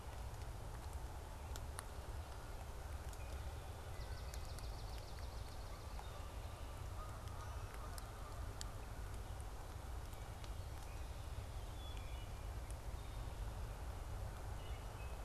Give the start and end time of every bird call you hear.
3.9s-6.0s: Swamp Sparrow (Melospiza georgiana)
5.7s-8.8s: Canada Goose (Branta canadensis)
11.8s-12.3s: Wood Thrush (Hylocichla mustelina)
14.3s-15.2s: Wood Thrush (Hylocichla mustelina)

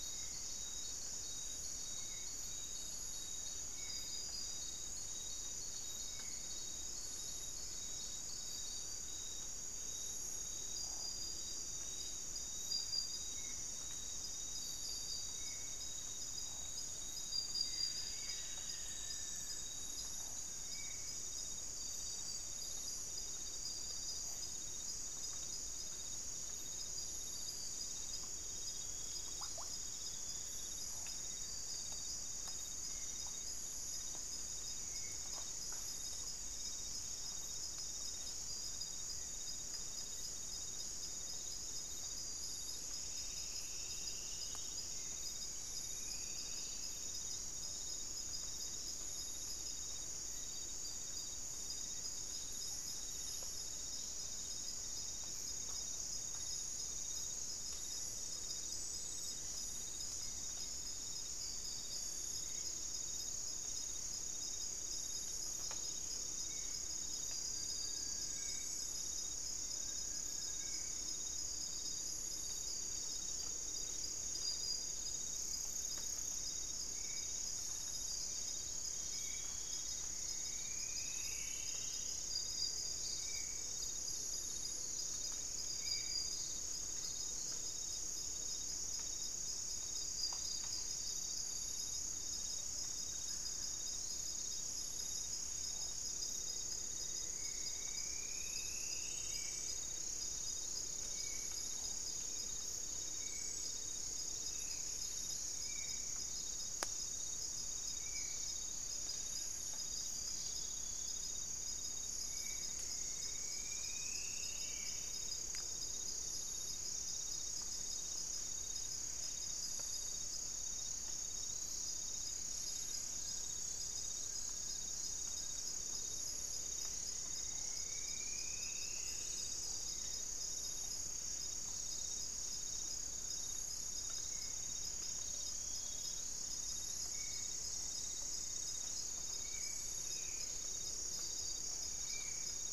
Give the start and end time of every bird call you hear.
0.0s-6.5s: Spot-winged Antshrike (Pygiptila stellaris)
13.3s-21.2s: Spot-winged Antshrike (Pygiptila stellaris)
17.5s-19.3s: unidentified bird
17.5s-19.7s: Buff-throated Woodcreeper (Xiphorhynchus guttatus)
29.1s-29.9s: unidentified bird
32.7s-35.3s: Spot-winged Antshrike (Pygiptila stellaris)
42.8s-47.1s: Striped Woodcreeper (Xiphorhynchus obsoletus)
60.1s-62.7s: unidentified bird
66.3s-71.2s: Spot-winged Antshrike (Pygiptila stellaris)
67.4s-71.0s: Long-billed Woodcreeper (Nasica longirostris)
76.8s-86.3s: Spot-winged Antshrike (Pygiptila stellaris)
80.0s-82.3s: Striped Woodcreeper (Xiphorhynchus obsoletus)
93.0s-93.9s: unidentified bird
96.8s-99.6s: Striped Woodcreeper (Xiphorhynchus obsoletus)
97.3s-115.1s: Spot-winged Antshrike (Pygiptila stellaris)
104.2s-105.0s: Black-spotted Bare-eye (Phlegopsis nigromaculata)
112.3s-115.2s: Striped Woodcreeper (Xiphorhynchus obsoletus)
122.9s-126.0s: unidentified bird
127.1s-129.6s: Striped Woodcreeper (Xiphorhynchus obsoletus)
128.8s-130.4s: unidentified bird
134.2s-142.7s: Spot-winged Antshrike (Pygiptila stellaris)
140.0s-142.7s: Black-spotted Bare-eye (Phlegopsis nigromaculata)

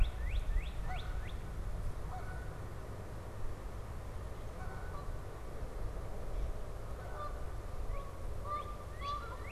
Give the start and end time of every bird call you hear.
0.0s-1.5s: Northern Cardinal (Cardinalis cardinalis)
0.0s-9.5s: Canada Goose (Branta canadensis)
7.7s-9.5s: Northern Cardinal (Cardinalis cardinalis)

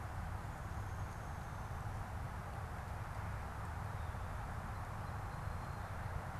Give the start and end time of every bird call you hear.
0.0s-2.2s: Downy Woodpecker (Dryobates pubescens)
3.7s-6.3s: Song Sparrow (Melospiza melodia)

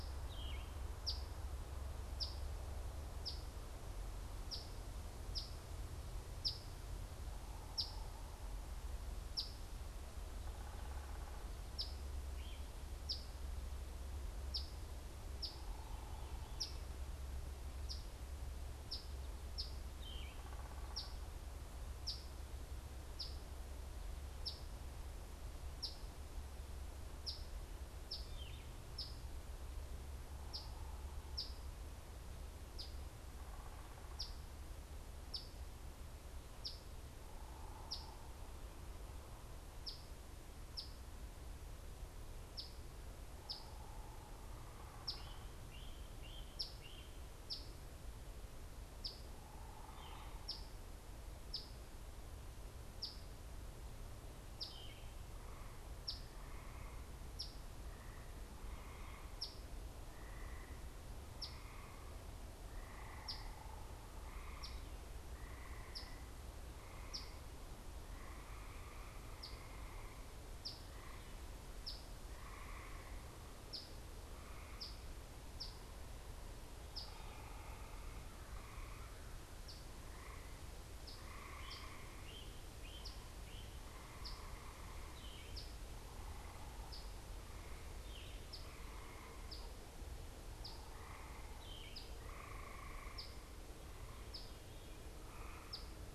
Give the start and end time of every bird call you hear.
0.0s-8.2s: Eastern Phoebe (Sayornis phoebe)
9.0s-47.9s: Eastern Phoebe (Sayornis phoebe)
10.2s-11.8s: unidentified bird
12.3s-12.6s: Great Crested Flycatcher (Myiarchus crinitus)
15.1s-16.7s: unidentified bird
19.8s-20.4s: Yellow-throated Vireo (Vireo flavifrons)
20.1s-21.2s: unidentified bird
28.0s-28.7s: Yellow-throated Vireo (Vireo flavifrons)
30.0s-31.4s: unidentified bird
33.3s-34.2s: unidentified bird
37.1s-38.3s: unidentified bird
43.1s-45.4s: unidentified bird
48.8s-96.1s: Eastern Phoebe (Sayornis phoebe)
49.2s-50.5s: unidentified bird
62.8s-63.9s: unidentified bird
81.4s-84.0s: Great Crested Flycatcher (Myiarchus crinitus)
85.0s-88.5s: Yellow-throated Vireo (Vireo flavifrons)

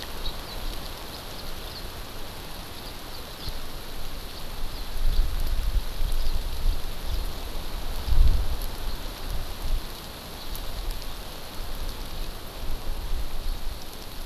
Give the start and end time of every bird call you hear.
0.2s-0.3s: House Finch (Haemorhous mexicanus)
1.1s-1.2s: House Finch (Haemorhous mexicanus)
1.7s-1.8s: House Finch (Haemorhous mexicanus)
3.3s-3.5s: House Finch (Haemorhous mexicanus)
4.7s-4.8s: House Finch (Haemorhous mexicanus)
5.1s-5.2s: House Finch (Haemorhous mexicanus)
6.2s-6.3s: House Finch (Haemorhous mexicanus)

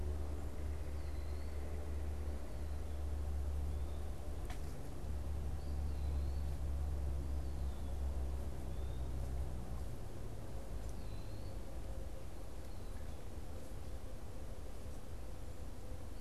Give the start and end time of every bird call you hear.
0.0s-2.8s: Red-bellied Woodpecker (Melanerpes carolinus)
0.4s-16.2s: Eastern Wood-Pewee (Contopus virens)

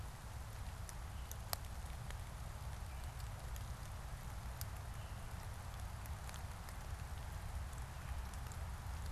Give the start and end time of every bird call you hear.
1.0s-9.1s: Veery (Catharus fuscescens)

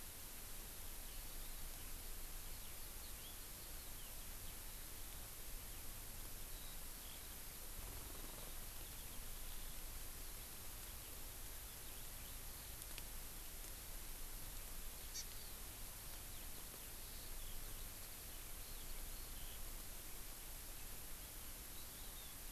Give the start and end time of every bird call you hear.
1.1s-5.2s: Eurasian Skylark (Alauda arvensis)
3.0s-3.3s: House Finch (Haemorhous mexicanus)
6.4s-12.8s: Eurasian Skylark (Alauda arvensis)
15.1s-15.6s: Hawaii Amakihi (Chlorodrepanis virens)
16.3s-19.7s: Eurasian Skylark (Alauda arvensis)
21.9s-22.4s: Hawaii Amakihi (Chlorodrepanis virens)

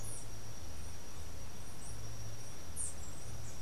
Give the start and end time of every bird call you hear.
0.0s-3.6s: Andean Emerald (Uranomitra franciae)

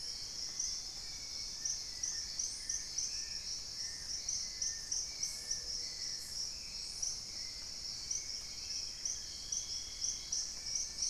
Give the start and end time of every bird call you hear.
0.0s-2.8s: Dusky-throated Antshrike (Thamnomanes ardesiacus)
0.0s-3.6s: Spot-winged Antshrike (Pygiptila stellaris)
0.0s-6.6s: Long-billed Woodcreeper (Nasica longirostris)
0.0s-11.1s: Hauxwell's Thrush (Turdus hauxwelli)
5.2s-6.1s: Gray-fronted Dove (Leptotila rufaxilla)
7.2s-10.2s: Gray Antbird (Cercomacra cinerascens)
10.2s-11.1s: Plain-winged Antshrike (Thamnophilus schistaceus)

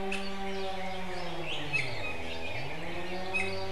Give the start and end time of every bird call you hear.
0.1s-0.4s: Iiwi (Drepanis coccinea)
1.4s-2.0s: Iiwi (Drepanis coccinea)
3.3s-3.7s: Iiwi (Drepanis coccinea)

